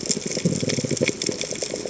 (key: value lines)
label: biophony
recorder: HydroMoth